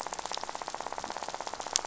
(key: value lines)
label: biophony, rattle
recorder: SoundTrap 500